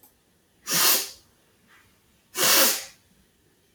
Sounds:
Sniff